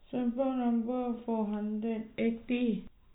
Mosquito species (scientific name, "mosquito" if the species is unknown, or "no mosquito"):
no mosquito